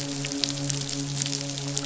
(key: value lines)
label: biophony, midshipman
recorder: SoundTrap 500